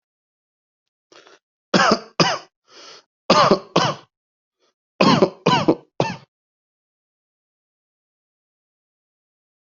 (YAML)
expert_labels:
- quality: good
  cough_type: dry
  dyspnea: false
  wheezing: true
  stridor: false
  choking: false
  congestion: false
  nothing: false
  diagnosis: obstructive lung disease
  severity: mild
age: 34
gender: male
respiratory_condition: false
fever_muscle_pain: false
status: COVID-19